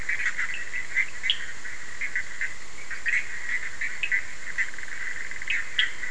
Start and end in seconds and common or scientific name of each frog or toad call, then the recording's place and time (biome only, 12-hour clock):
0.0	6.1	Bischoff's tree frog
0.5	1.5	Cochran's lime tree frog
4.0	4.1	Cochran's lime tree frog
5.4	6.0	Cochran's lime tree frog
Atlantic Forest, 12:30am